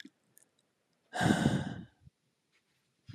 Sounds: Sigh